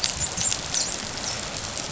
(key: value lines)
label: biophony, dolphin
recorder: SoundTrap 500